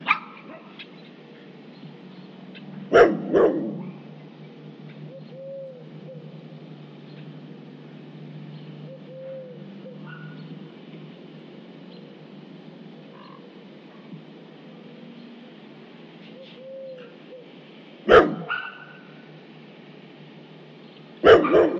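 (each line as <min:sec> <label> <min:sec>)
0:00.0 A small dog barks briefly and sharply. 0:00.9
0:00.0 Small birds chatter irregularly in an outdoor urban environment. 0:21.8
0:00.7 Small birds produce brief, irregular clicking and chattering sounds. 0:05.3
0:02.9 A large dog barks loudly and deeply, accompanied by low grumbling sounds. 0:04.2
0:05.0 A dove calls rhythmically with soft, repeating coos. 0:06.7
0:08.7 A dove calls rhythmically with soft, repeating coos. 0:10.1
0:10.0 A small dog barks briefly and sharply. 0:10.5
0:13.1 A crow produces a brief, sharp call. 0:13.8
0:16.3 A dove calls rhythmically with soft, repeating coos. 0:17.8
0:18.0 A large dog barks loudly and deeply. 0:18.4
0:18.5 A small dog barks sharply with a close echo. 0:19.4
0:21.2 A large dog barks loudly and deeply. 0:21.8
0:21.4 A small dog barks sharply with a close echo. 0:21.8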